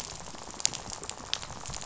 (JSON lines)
{"label": "biophony, rattle", "recorder": "SoundTrap 500"}